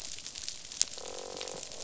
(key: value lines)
label: biophony, croak
recorder: SoundTrap 500